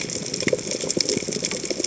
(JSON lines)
{"label": "biophony, chatter", "recorder": "HydroMoth"}